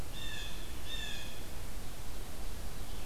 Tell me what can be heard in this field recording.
Blue Jay